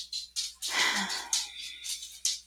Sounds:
Sigh